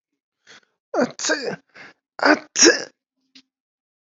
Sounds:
Sneeze